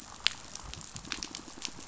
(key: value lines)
label: biophony, pulse
recorder: SoundTrap 500